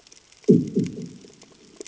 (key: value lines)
label: anthrophony, bomb
recorder: HydroMoth